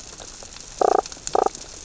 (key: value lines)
label: biophony, damselfish
recorder: SoundTrap 600 or HydroMoth